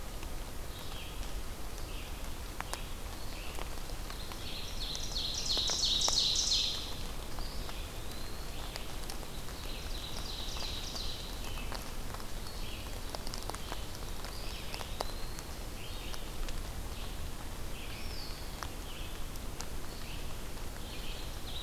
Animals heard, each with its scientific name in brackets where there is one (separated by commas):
Eastern Wood-Pewee (Contopus virens), Red-eyed Vireo (Vireo olivaceus), Ovenbird (Seiurus aurocapilla)